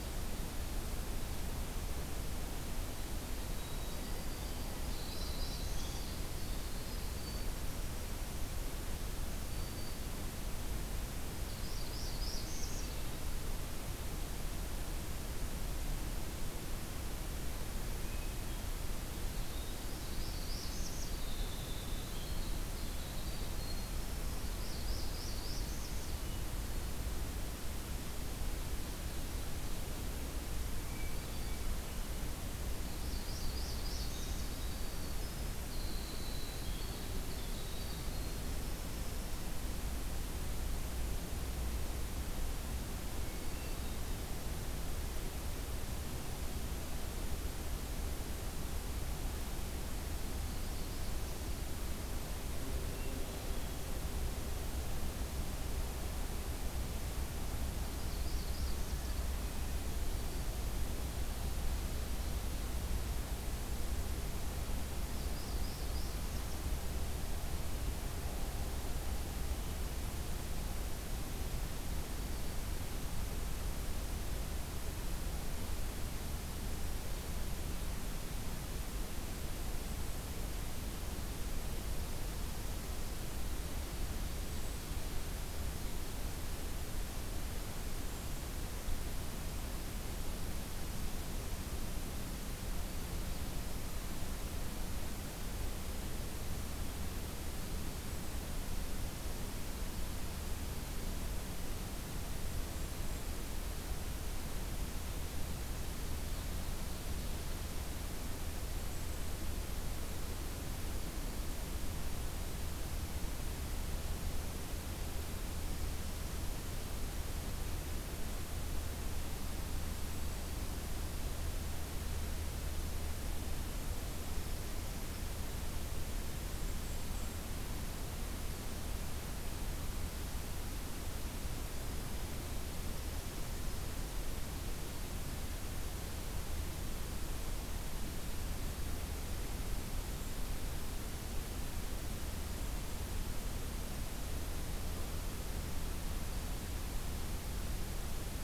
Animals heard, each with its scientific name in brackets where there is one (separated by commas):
Golden-crowned Kinglet (Regulus satrapa), Northern Parula (Setophaga americana), Hermit Thrush (Catharus guttatus), Winter Wren (Troglodytes hiemalis), Black-throated Green Warbler (Setophaga virens)